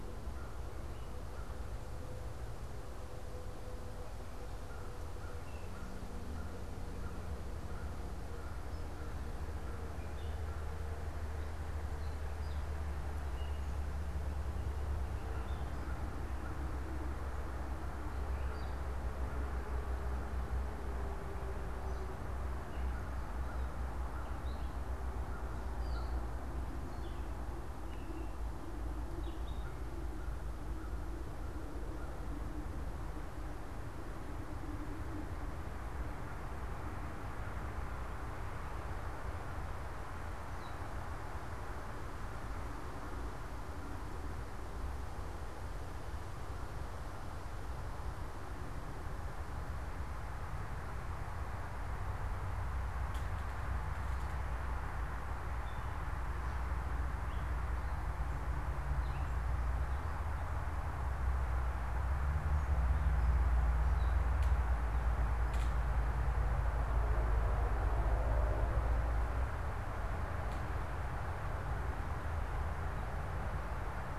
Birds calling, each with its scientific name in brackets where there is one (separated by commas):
Gray Catbird (Dumetella carolinensis), American Crow (Corvus brachyrhynchos)